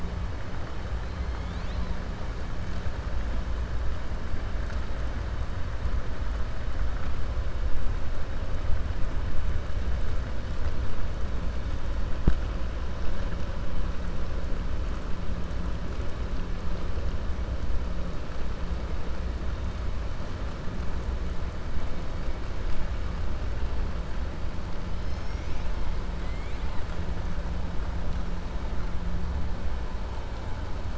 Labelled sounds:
24.9	25.7	killer whale, 4.1 to 6.9 kHz
26.1	26.9	killer whale, 0.99 to 4.4 kHz

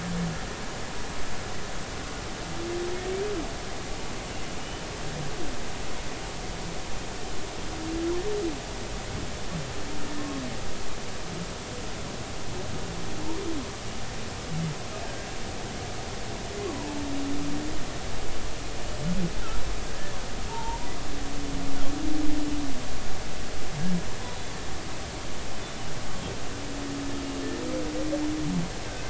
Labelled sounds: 4.6	4.9	humpback whale, 2.8 to 3.0 kHz
10.2	10.4	humpback whale, 1.0 to 1.1 kHz
16.7	17.0	humpback whale, 0.83 to 1.1 kHz
19.9	20.2	humpback whale, 1.5 to 1.8 kHz
20.5	20.9	humpback whale, 0.83 to 1.0 kHz

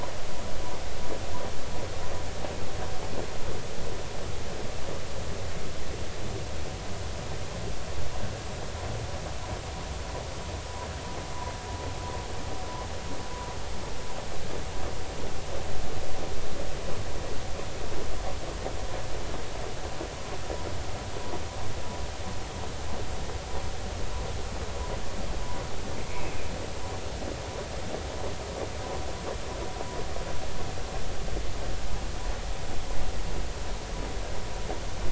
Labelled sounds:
26.0	26.3	killer whale, northern resident, G clan, call N24ii, 2.1 to 2.5 kHz

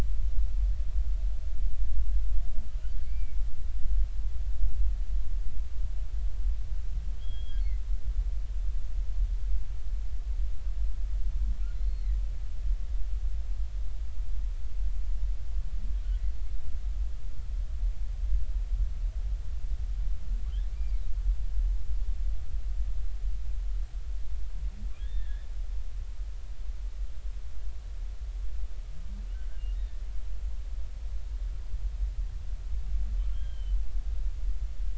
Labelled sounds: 3.0	3.4	humpback whale, 2.1 to 2.4 kHz
7.2	7.6	humpback whale, 3.1 to 3.4 kHz
11.7	12.1	humpback whale, 3.8 to 4.4 kHz
20.7	21.0	humpback whale, 2.1 to 2.5 kHz
25.0	25.5	humpback whale, 1.6 to 3.7 kHz
29.8	30.0	humpback whale, 1.7 to 2.0 kHz
33.3	33.8	humpback whale, 1.5 to 3.3 kHz

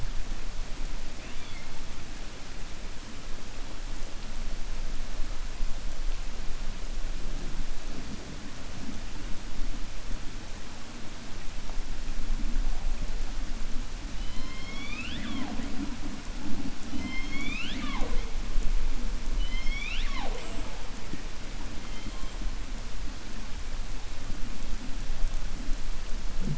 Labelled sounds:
1.1	1.7	killer whale, 1.8 to 4.5 kHz
16.9	18.2	killer whale, 0.21 to 7.1 kHz
19.3	20.8	killer whale, 0.47 to 5.8 kHz

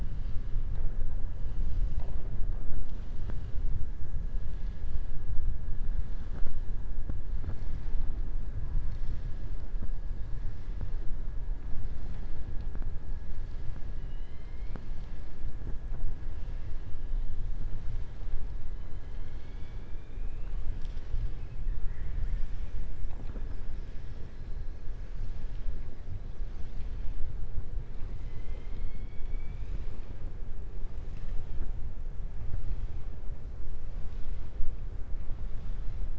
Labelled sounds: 19.1	20.6	killer whale, southern resident, 2.2 to 4.6 kHz
21.8	22.7	killer whale, southern resident, 1.3 to 3.3 kHz

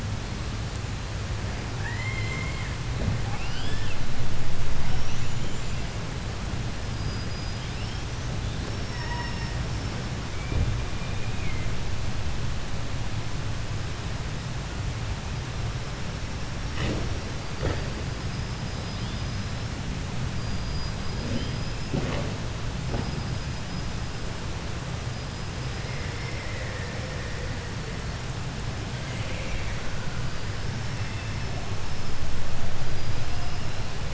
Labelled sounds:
1.7	2.8	killer whale, 0.10 to 7.6 kHz
3.2	4.0	killer whale, 0.10 to 8.0 kHz
4.7	6.1	killer whale, 0.79 to 7.6 kHz
6.8	8.4	killer whale, 1.3 to 6.7 kHz
8.6	11.8	killer whale, southern resident, 0.64 to 6.3 kHz
17.3	19.8	killer whale, 2.8 to 5.8 kHz
20.3	22.0	killer whale, southern resident, call S19, 1.4 to 8.0 kHz
22.8	24.5	killer whale, 4.7 to 8.0 kHz
25.0	26.9	killer whale, southern resident, 4.4 to 8.0 kHz
30.6	32.5	killer whale, 2.0 to 5.6 kHz
32.7	34.1	killer whale, southern resident, 0.55 to 5.5 kHz

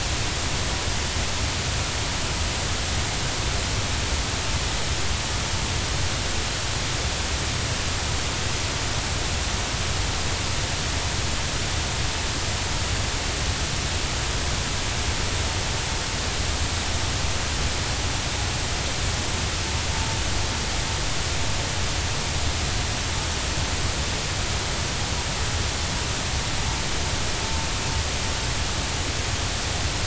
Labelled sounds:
19.9	20.2	vessel noise, 0.86 to 0.96 kHz

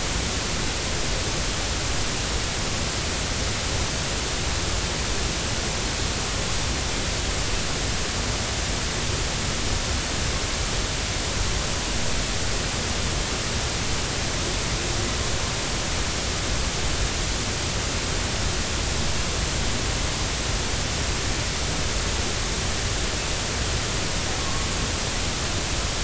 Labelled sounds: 24.4	24.7	humpback whale, 0.99 to 1.2 kHz

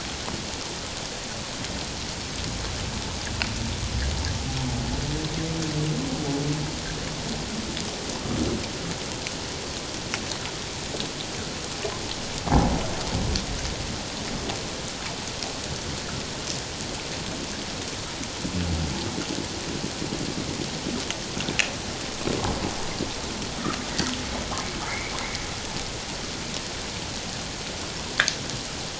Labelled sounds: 24.9	25.2	humpback whale, 1.9 to 2.3 kHz

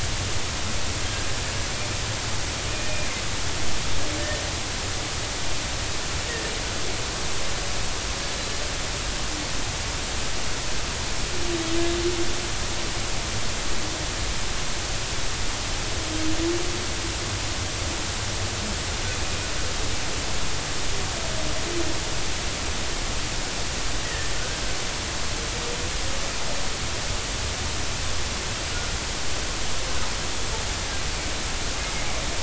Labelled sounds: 4.2	4.4	humpback whale, 1.8 to 1.9 kHz
24.0	24.6	humpback whale, 1.4 to 2.0 kHz

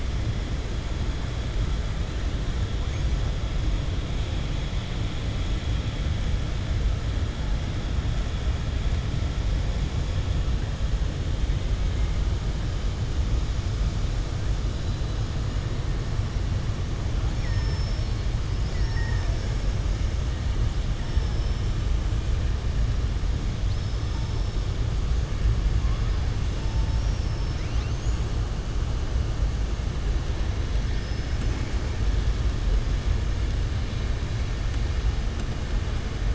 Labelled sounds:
17.3	19.6	killer whale, southern resident, 0.85 to 7.0 kHz
30.9	31.7	killer whale, southern resident, 4.6 to 6.1 kHz

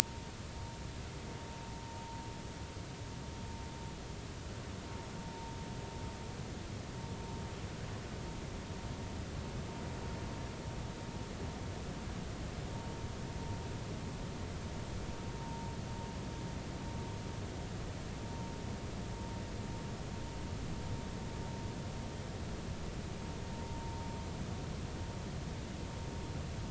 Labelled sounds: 5.2	5.5	vessel noise, 0.86 to 0.96 kHz
15.4	15.7	vessel noise, 0.90 to 0.99 kHz

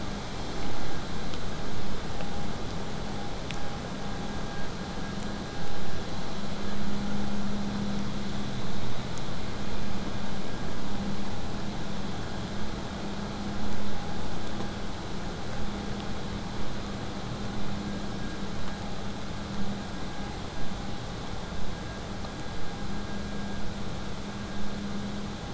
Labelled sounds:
20.5	25.5	vessel noise, 0 to 8.0 kHz

